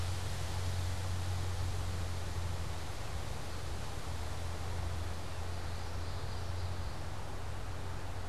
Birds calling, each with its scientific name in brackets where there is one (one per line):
Common Yellowthroat (Geothlypis trichas)